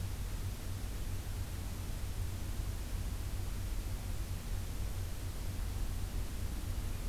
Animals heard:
forest ambience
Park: Acadia National Park